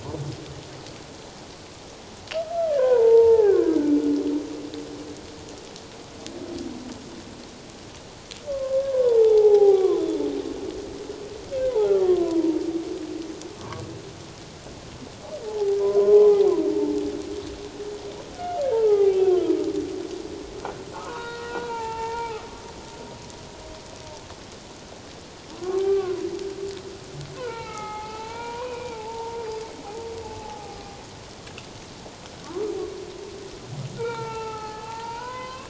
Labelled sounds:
2.7	4.0	humpback whale, 0.78 to 1.8 kHz
8.5	10.0	humpback whale, 0.78 to 1.7 kHz
11.7	12.6	humpback whale, 0.78 to 1.2 kHz
13.6	13.8	humpback whale, 0.91 to 1.2 kHz
15.4	17.0	humpback whale, 0.78 to 1.1 kHz
18.4	19.5	humpback whale, 0.78 to 2.8 kHz
20.9	22.4	humpback whale, 0.81 to 3.9 kHz
25.6	26.2	humpback whale, 0.78 to 2.4 kHz
27.4	29.4	humpback whale, 0.78 to 2.8 kHz
30.4	30.8	humpback whale, 0.78 to 1.3 kHz
34.0	35.6	humpback whale, 0.81 to 3.1 kHz

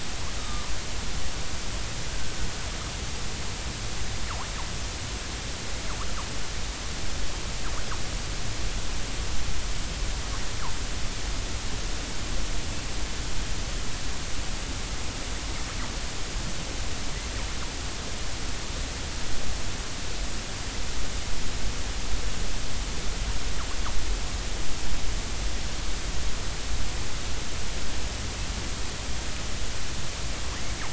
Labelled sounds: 0.4	0.7	killer whale, northern resident, 1.2 to 3.8 kHz
2.1	2.4	killer whale, northern resident, 1.5 to 1.7 kHz

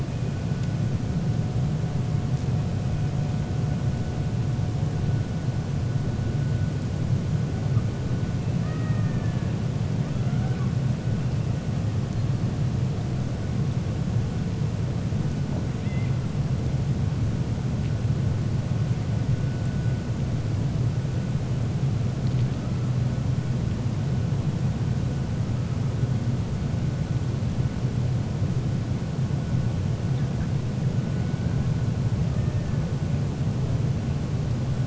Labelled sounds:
8.5	9.5	killer whale, 0.61 to 2.6 kHz

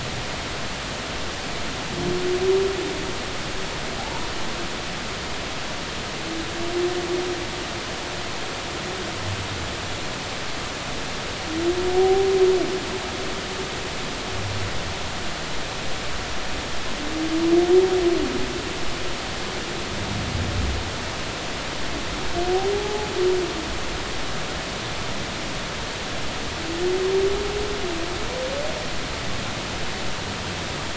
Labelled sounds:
4.0	4.3	humpback whale, 0.80 to 1.0 kHz
11.9	12.3	humpback whale, 0.80 to 0.83 kHz
22.7	23.1	humpback whale, 0.80 to 0.90 kHz

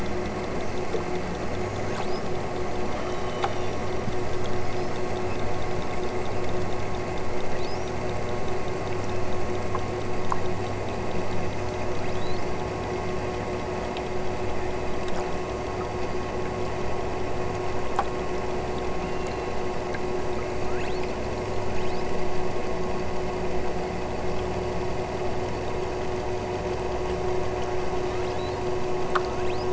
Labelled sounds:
1.3	2.4	killer whale, southern Alaska resident, 4.2 to 8.0 kHz
2.9	3.8	killer whale, southern Alaska resident, 2.3 to 6.1 kHz
4.2	5.1	killer whale, southern Alaska resident, 2.8 to 7.5 kHz
7.0	8.0	killer whale, southern Alaska resident, 3.2 to 7.0 kHz
8.9	9.7	killer whale, southern Alaska resident, 3.9 to 8.0 kHz
11.4	12.5	killer whale, southern Alaska resident, 3.1 to 8.0 kHz
13.3	14.3	killer whale, southern Alaska resident, 5.7 to 8.0 kHz
18.9	19.7	killer whale, southern Alaska resident, 2.3 to 4.5 kHz
20.0	22.2	killer whale, southern Alaska resident, 2.7 to 8.0 kHz
27.8	29.7	killer whale, southern Alaska resident, 2.5 to 8.0 kHz

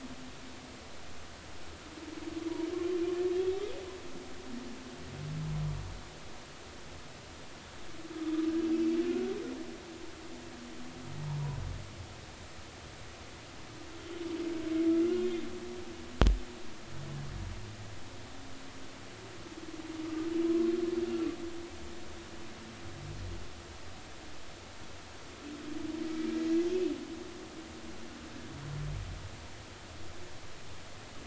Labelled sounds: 15.1	15.4	humpback whale, 3.1 to 3.3 kHz

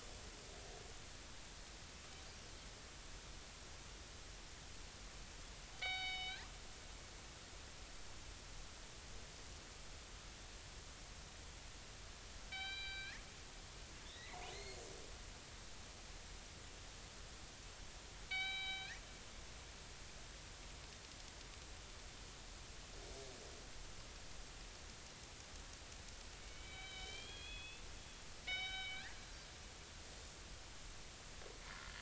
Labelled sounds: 5.7	6.4	killer whale, northern resident, G clan, 0.80 to 5.3 kHz
12.5	13.2	killer whale, northern resident, G clan, 1.5 to 4.8 kHz
14.0	14.8	killer whale, northern resident, G clan, 1.8 to 4.4 kHz
18.3	19.0	killer whale, northern resident, G clan, 0.80 to 4.7 kHz
26.4	27.8	killer whale, northern resident, G clan, 2.2 to 4.3 kHz
28.4	29.2	killer whale, northern resident, G clan, 1.5 to 5.4 kHz

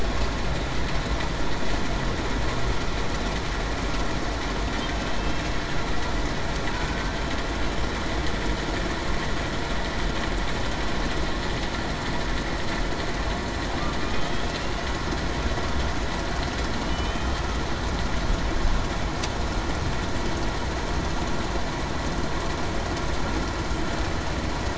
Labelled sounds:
6.7	7.2	killer whale, Bigg's (transient), 1.5 to 1.6 kHz
16.8	17.4	killer whale, Bigg's (transient), 2.9 to 3.2 kHz

